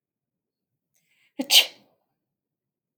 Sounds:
Sneeze